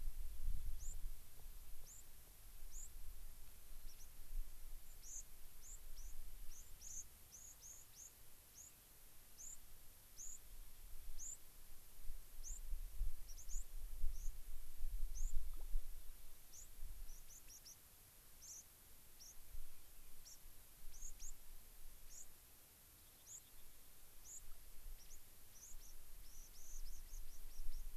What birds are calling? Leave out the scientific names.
White-crowned Sparrow, Rock Wren